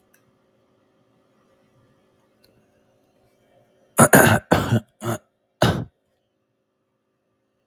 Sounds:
Cough